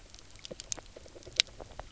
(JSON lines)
{"label": "biophony, knock croak", "recorder": "SoundTrap 300"}